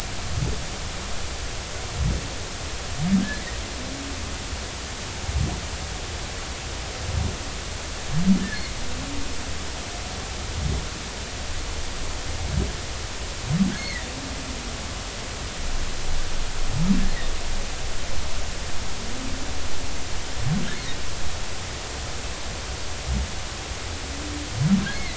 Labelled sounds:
13.8	14.1	humpback whale, 1.8 to 2.2 kHz
24.9	25.1	humpback whale, 1.9 to 2.2 kHz

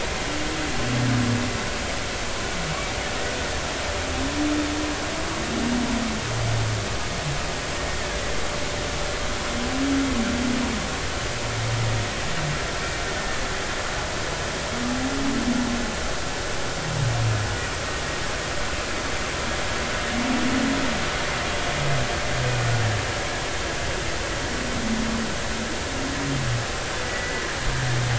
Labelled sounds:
13.1	13.5	humpback whale, 1.7 to 1.8 kHz
27.0	27.5	humpback whale, 1.9 to 2.0 kHz

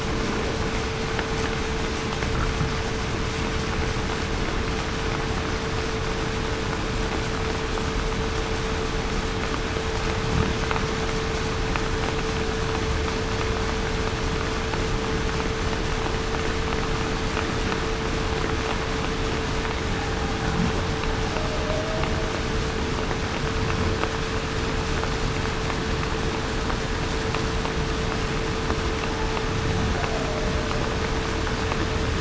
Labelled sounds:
21.6	22.0	humpback whale, 0.58 to 0.66 kHz

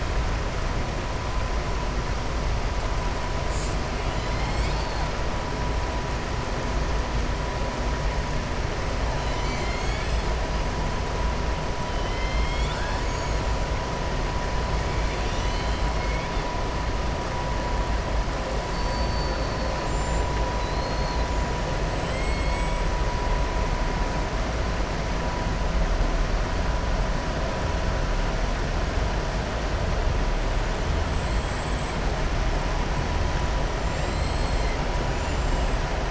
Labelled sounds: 15.9	16.3	killer whale, southern resident, 2.1 to 3.6 kHz
20.5	21.3	killer whale, southern resident, 3.9 to 5.3 kHz
22.1	22.8	killer whale, southern resident, 6.8 to 7.9 kHz
31.1	31.9	killer whale, southern resident, 6.7 to 7.9 kHz
33.9	34.7	killer whale, southern resident, 3.2 to 5.2 kHz
35.0	35.7	killer whale, southern resident, 6.8 to 8.0 kHz

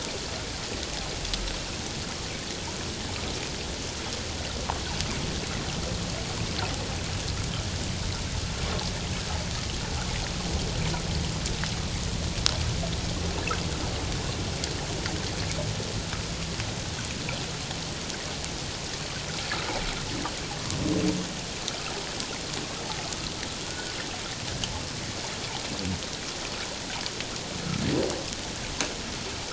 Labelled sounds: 23.6	23.9	humpback whale, 1.4 to 1.5 kHz

